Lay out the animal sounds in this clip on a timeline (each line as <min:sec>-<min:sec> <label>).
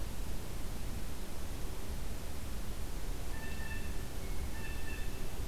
0:03.1-0:05.5 Blue Jay (Cyanocitta cristata)